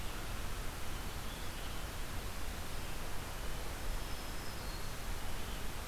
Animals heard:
Black-throated Green Warbler (Setophaga virens), Red-eyed Vireo (Vireo olivaceus)

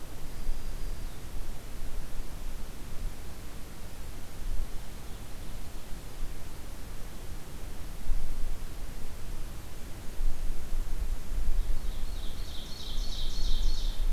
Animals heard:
Black-throated Green Warbler (Setophaga virens), Ovenbird (Seiurus aurocapilla)

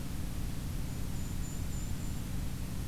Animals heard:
Golden-crowned Kinglet (Regulus satrapa)

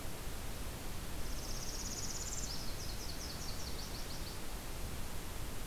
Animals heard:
Nashville Warbler (Leiothlypis ruficapilla), Northern Parula (Setophaga americana)

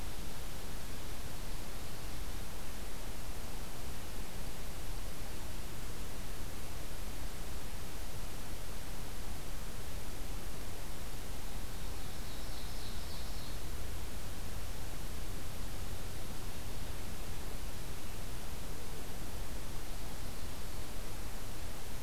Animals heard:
Ovenbird (Seiurus aurocapilla)

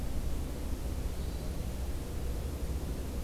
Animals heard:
Hermit Thrush (Catharus guttatus)

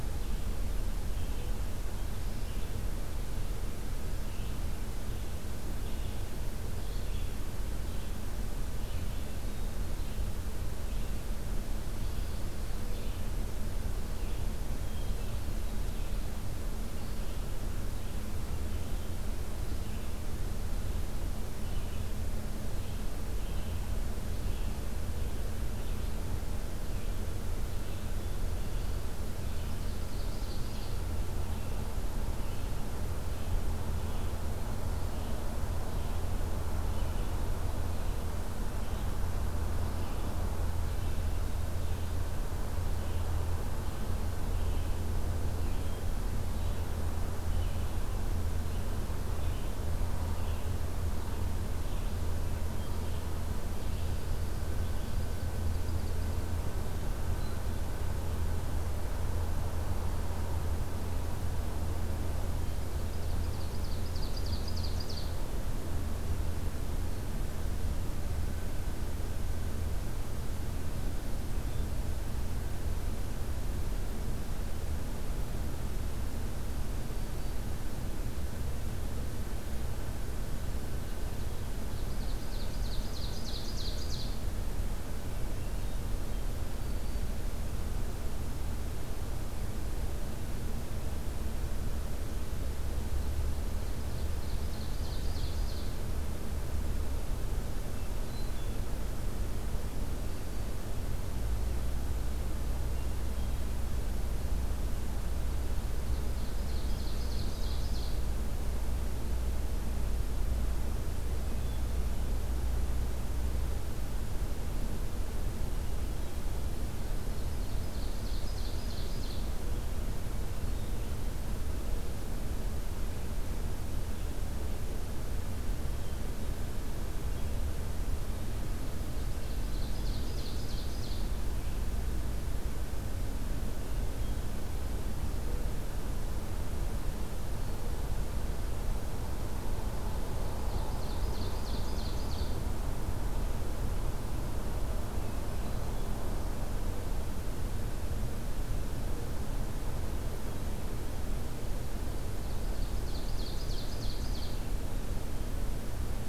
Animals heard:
Red-eyed Vireo (Vireo olivaceus), Ovenbird (Seiurus aurocapilla), Pine Warbler (Setophaga pinus), Black-throated Green Warbler (Setophaga virens), Hermit Thrush (Catharus guttatus)

